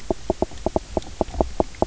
{"label": "biophony, knock croak", "recorder": "SoundTrap 300"}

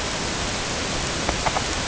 {"label": "ambient", "recorder": "HydroMoth"}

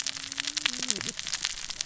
{"label": "biophony, cascading saw", "recorder": "SoundTrap 600 or HydroMoth"}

